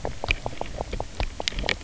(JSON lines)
{"label": "biophony, knock croak", "recorder": "SoundTrap 300"}